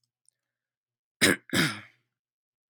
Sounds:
Throat clearing